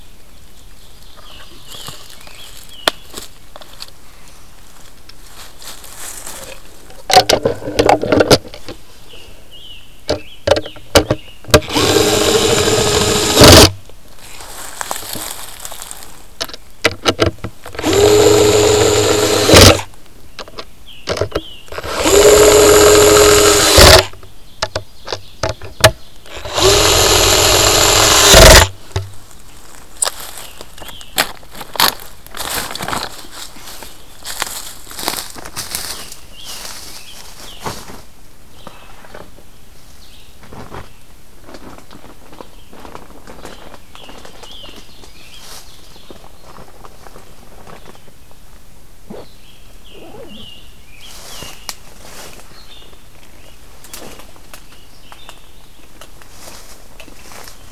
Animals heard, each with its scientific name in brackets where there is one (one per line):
Scarlet Tanager (Piranga olivacea)
Ovenbird (Seiurus aurocapilla)
Red-eyed Vireo (Vireo olivaceus)